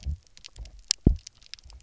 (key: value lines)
label: biophony, double pulse
recorder: SoundTrap 300